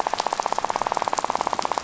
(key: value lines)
label: biophony, rattle
recorder: SoundTrap 500